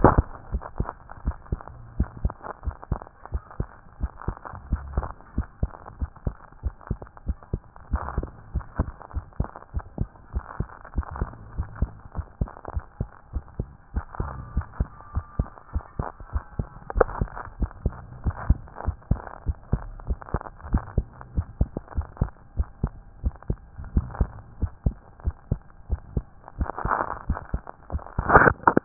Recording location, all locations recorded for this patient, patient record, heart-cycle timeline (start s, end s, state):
tricuspid valve (TV)
aortic valve (AV)+pulmonary valve (PV)+tricuspid valve (TV)+mitral valve (MV)
#Age: Child
#Sex: Male
#Height: 128.0 cm
#Weight: 24.1 kg
#Pregnancy status: False
#Murmur: Absent
#Murmur locations: nan
#Most audible location: nan
#Systolic murmur timing: nan
#Systolic murmur shape: nan
#Systolic murmur grading: nan
#Systolic murmur pitch: nan
#Systolic murmur quality: nan
#Diastolic murmur timing: nan
#Diastolic murmur shape: nan
#Diastolic murmur grading: nan
#Diastolic murmur pitch: nan
#Diastolic murmur quality: nan
#Outcome: Abnormal
#Campaign: 2014 screening campaign
0.00	5.36	unannotated
5.36	5.46	S1
5.46	5.62	systole
5.62	5.70	S2
5.70	6.00	diastole
6.00	6.10	S1
6.10	6.26	systole
6.26	6.36	S2
6.36	6.64	diastole
6.64	6.74	S1
6.74	6.90	systole
6.90	6.98	S2
6.98	7.26	diastole
7.26	7.38	S1
7.38	7.52	systole
7.52	7.62	S2
7.62	7.92	diastole
7.92	8.02	S1
8.02	8.16	systole
8.16	8.26	S2
8.26	8.54	diastole
8.54	8.64	S1
8.64	8.78	systole
8.78	8.90	S2
8.90	9.14	diastole
9.14	9.24	S1
9.24	9.38	systole
9.38	9.48	S2
9.48	9.74	diastole
9.74	9.84	S1
9.84	9.98	systole
9.98	10.08	S2
10.08	10.34	diastole
10.34	10.44	S1
10.44	10.58	systole
10.58	10.68	S2
10.68	10.96	diastole
10.96	11.06	S1
11.06	11.20	systole
11.20	11.28	S2
11.28	11.56	diastole
11.56	11.68	S1
11.68	11.80	systole
11.80	11.90	S2
11.90	12.16	diastole
12.16	12.26	S1
12.26	12.40	systole
12.40	12.50	S2
12.50	12.74	diastole
12.74	12.84	S1
12.84	13.00	systole
13.00	13.08	S2
13.08	13.34	diastole
13.34	13.44	S1
13.44	13.58	systole
13.58	13.68	S2
13.68	13.94	diastole
13.94	14.04	S1
14.04	14.20	systole
14.20	14.30	S2
14.30	14.54	diastole
14.54	14.66	S1
14.66	14.78	systole
14.78	14.88	S2
14.88	15.14	diastole
15.14	15.26	S1
15.26	15.38	systole
15.38	15.48	S2
15.48	15.74	diastole
15.74	15.84	S1
15.84	15.98	systole
15.98	16.08	S2
16.08	16.32	diastole
16.32	16.44	S1
16.44	16.58	systole
16.58	16.68	S2
16.68	16.96	diastole
16.96	17.08	S1
17.08	17.20	systole
17.20	17.30	S2
17.30	17.60	diastole
17.60	17.70	S1
17.70	17.84	systole
17.84	17.94	S2
17.94	18.24	diastole
18.24	18.36	S1
18.36	18.48	systole
18.48	18.58	S2
18.58	18.86	diastole
18.86	18.96	S1
18.96	19.10	systole
19.10	19.20	S2
19.20	19.46	diastole
19.46	19.56	S1
19.56	19.72	systole
19.72	19.82	S2
19.82	20.08	diastole
20.08	20.18	S1
20.18	20.32	systole
20.32	20.42	S2
20.42	20.70	diastole
20.70	20.84	S1
20.84	20.96	systole
20.96	21.06	S2
21.06	21.36	diastole
21.36	21.46	S1
21.46	21.60	systole
21.60	21.70	S2
21.70	21.96	diastole
21.96	22.06	S1
22.06	22.20	systole
22.20	22.30	S2
22.30	22.56	diastole
22.56	22.68	S1
22.68	22.82	systole
22.82	22.92	S2
22.92	23.24	diastole
23.24	23.34	S1
23.34	23.48	systole
23.48	23.58	S2
23.58	23.94	diastole
23.94	24.06	S1
24.06	24.18	systole
24.18	24.30	S2
24.30	24.60	diastole
24.60	24.72	S1
24.72	24.84	systole
24.84	24.96	S2
24.96	25.24	diastole
25.24	25.36	S1
25.36	25.50	systole
25.50	25.60	S2
25.60	25.90	diastole
25.90	26.00	S1
26.00	26.14	systole
26.14	26.24	S2
26.24	26.58	diastole
26.58	28.85	unannotated